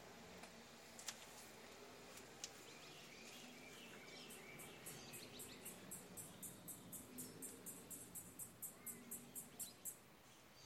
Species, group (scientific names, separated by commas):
Yoyetta celis, Cicadidae